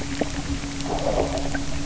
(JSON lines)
{"label": "anthrophony, boat engine", "recorder": "SoundTrap 300"}